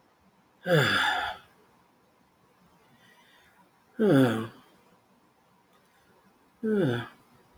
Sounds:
Sigh